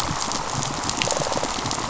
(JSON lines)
{"label": "biophony, rattle response", "recorder": "SoundTrap 500"}